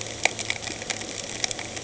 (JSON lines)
{"label": "anthrophony, boat engine", "recorder": "HydroMoth"}